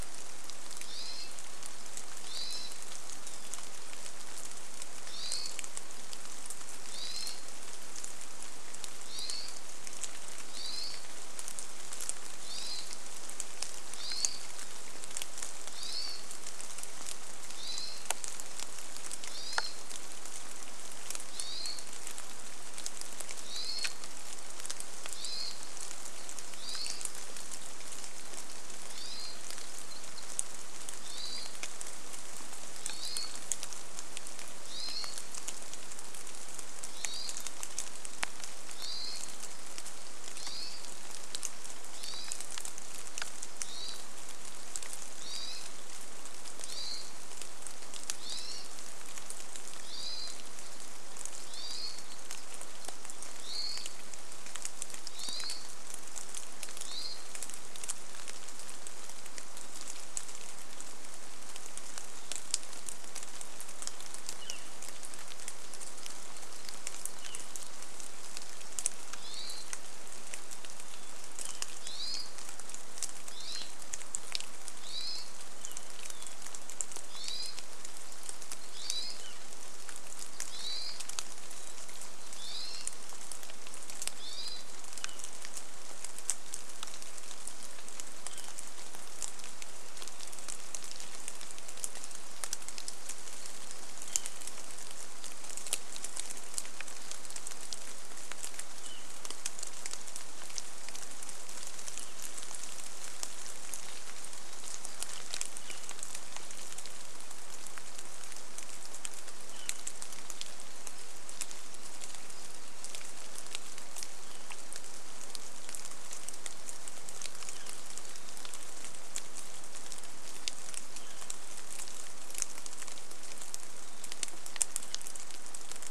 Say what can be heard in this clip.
Hermit Thrush call, rain, Hermit Thrush song, unidentified bird chip note, Northern Flicker call